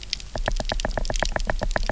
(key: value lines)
label: biophony, knock
recorder: SoundTrap 300